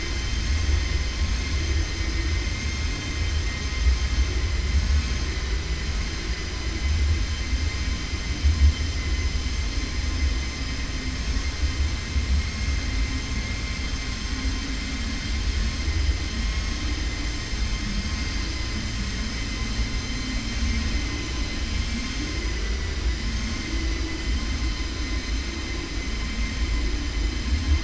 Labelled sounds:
22.4	23.0	vessel noise, 0.99 to 3.0 kHz

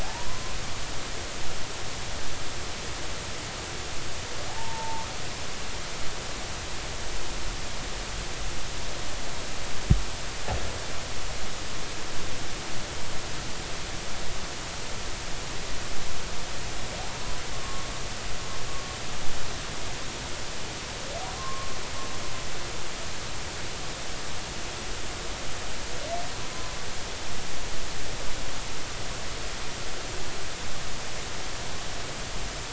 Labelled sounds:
0.0	0.4	humpback whale, 0.80 to 1.1 kHz
4.5	5.1	humpback whale, 0.80 to 1.1 kHz
18.5	18.9	humpback whale, 1.0 to 1.2 kHz
21.4	21.7	humpback whale, 0.99 to 1.2 kHz
26.5	26.8	humpback whale, 0.99 to 1.1 kHz

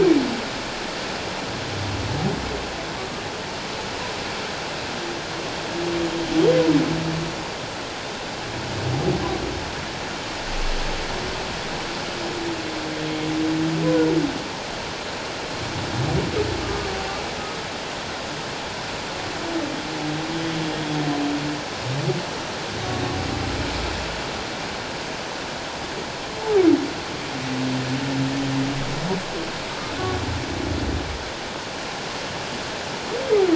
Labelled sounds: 16.6	16.9	humpback whale, 1.1 to 1.2 kHz

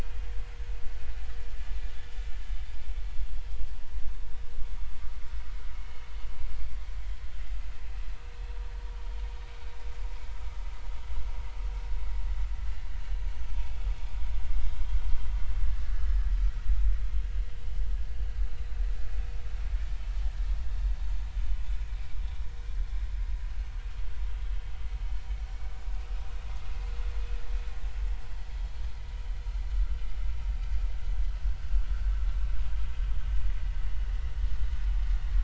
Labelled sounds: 15.8	16.3	vessel noise, 1.4 to 1.9 kHz
18.5	18.8	vessel noise, 3.9 to 4.1 kHz
32.6	32.9	vessel noise, 3.1 to 3.2 kHz

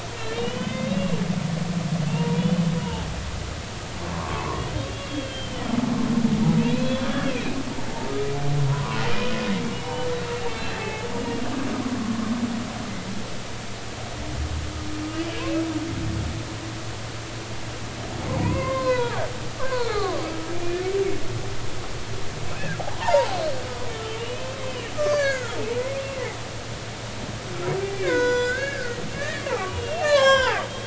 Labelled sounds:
0.3	1.2	humpback whale, 2.0 to 3.9 kHz
2.1	2.6	humpback whale, 0.86 to 3.1 kHz
4.1	5.7	humpback whale, 0.83 to 3.3 kHz
6.7	7.4	humpback whale, 2.3 to 4.2 kHz
8.7	10.1	humpback whale, 0.93 to 3.1 kHz
10.8	11.5	humpback whale, 0.80 to 2.9 kHz
15.1	15.4	humpback whale, 2.8 to 3.0 kHz
18.3	19.2	humpback whale, 0.80 to 4.2 kHz
19.6	20.8	humpback whale, 0.80 to 4.6 kHz
22.5	23.4	humpback whale, 0.80 to 4.9 kHz
23.9	25.6	humpback whale, 0.99 to 6.1 kHz
27.9	30.6	humpback whale, 0.80 to 7.5 kHz

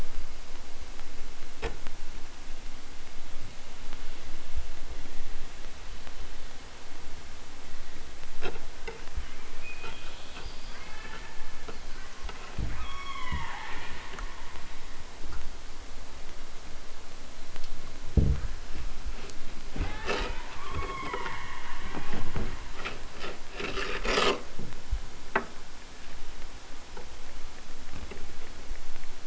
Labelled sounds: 10.7	12.4	killer whale, southern Alaska resident, 0.23 to 3.6 kHz
12.7	14.9	killer whale, southern Alaska resident, 0.32 to 5.9 kHz
19.7	22.4	killer whale, southern Alaska resident, 0.41 to 3.9 kHz

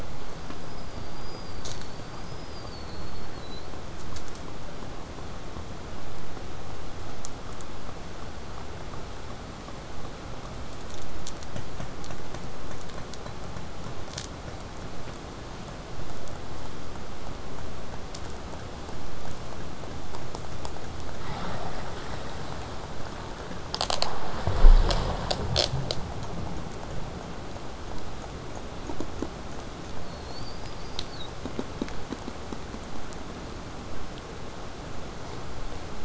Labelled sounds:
0.0	3.7	killer whale, southern resident, 3.7 to 8.0 kHz
30.0	31.3	killer whale, southern resident, 3.4 to 8.0 kHz

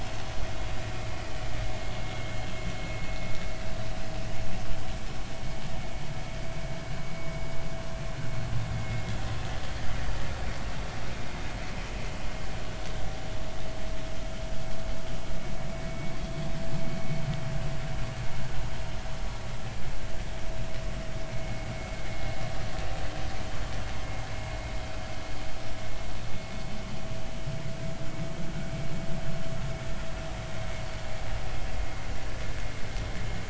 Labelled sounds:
15.9	16.1	vessel noise, 2.2 to 2.3 kHz

